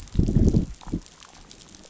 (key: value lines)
label: biophony, growl
recorder: SoundTrap 500